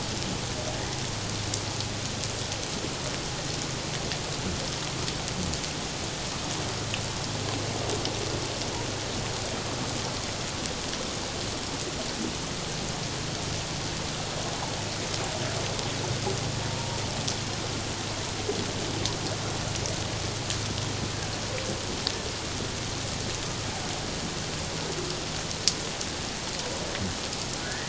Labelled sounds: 27.6	27.8	humpback whale, 1.4 to 2.0 kHz

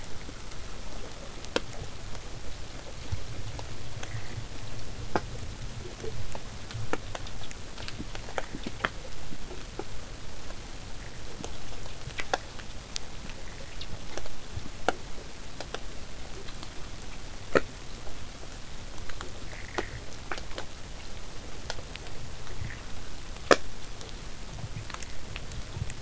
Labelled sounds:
21.0	26.0	vessel noise, 0 to 8.0 kHz

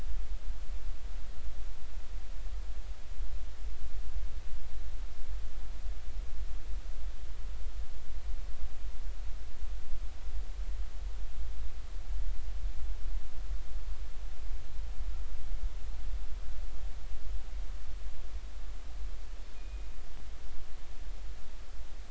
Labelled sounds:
19.6	19.9	killer whale, northern resident, G clan, 2.4 to 2.6 kHz

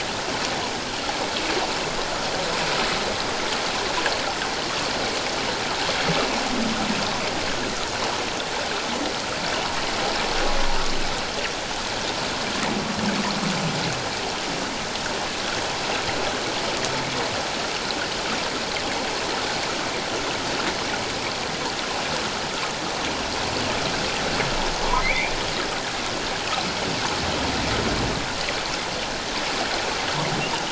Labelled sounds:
24.8	25.4	humpback whale, 0.91 to 2.6 kHz

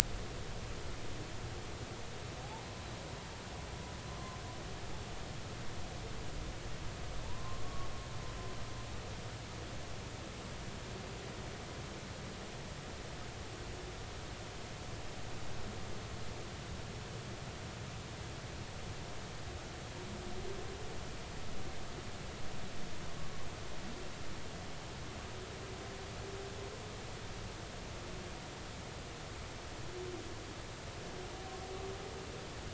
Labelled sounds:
7.2	7.9	humpback whale, 0.86 to 1.2 kHz

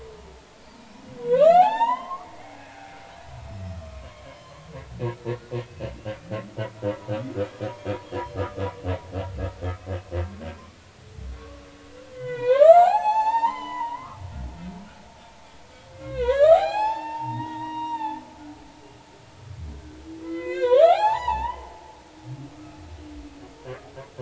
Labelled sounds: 0.8	2.9	humpback whale, 0.80 to 6.8 kHz
3.7	4.7	humpback whale, 0.96 to 4.2 kHz
5.1	5.4	humpback whale, 2.1 to 2.3 kHz
7.6	8.6	humpback whale, 1.2 to 6.6 kHz
10.5	10.8	humpback whale, 2.2 to 2.5 kHz
11.4	11.6	humpback whale, 1.1 to 1.2 kHz
12.1	14.2	humpback whale, 0.80 to 8.0 kHz
15.9	18.2	humpback whale, 0.80 to 7.8 kHz
20.2	22.8	humpback whale, 0.80 to 8.0 kHz

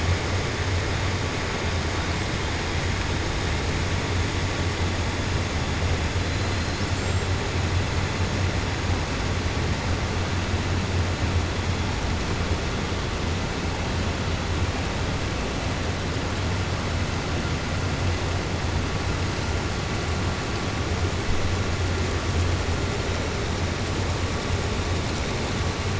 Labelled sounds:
6.5	7.3	killer whale, 4.1 to 7.7 kHz

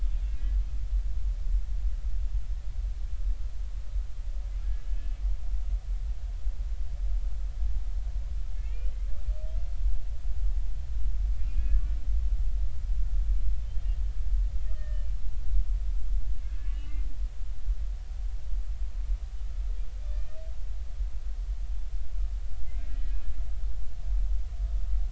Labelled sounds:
0.3	0.6	humpback whale, 1.6 to 1.7 kHz
4.9	5.2	humpback whale, 1.7 to 2.7 kHz
8.5	8.9	humpback whale, 2.1 to 3.0 kHz
11.4	11.8	humpback whale, 1.6 to 2.6 kHz
13.6	15.1	humpback whale, 1.2 to 3.3 kHz
16.4	17.0	humpback whale, 1.5 to 3.0 kHz
20.1	20.4	humpback whale, 1.7 to 1.9 kHz
22.7	23.1	humpback whale, 1.9 to 2.3 kHz

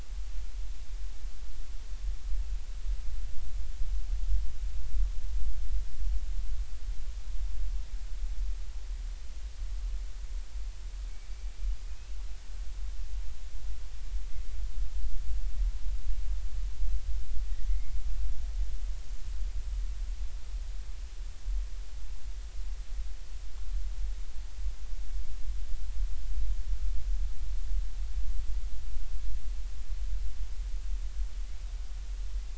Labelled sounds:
11.9	12.1	killer whale, Bigg's (transient), 2.4 to 2.7 kHz
17.7	18.0	killer whale, Bigg's (transient), 2.0 to 2.2 kHz

